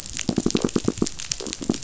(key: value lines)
label: biophony, knock
recorder: SoundTrap 500